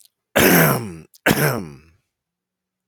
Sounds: Throat clearing